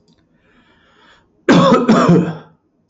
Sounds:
Cough